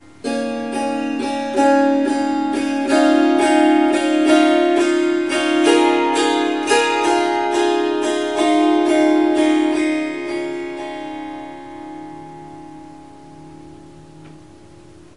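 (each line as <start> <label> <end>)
0.2 A harp plays a melody that increases in volume and then fades out. 15.2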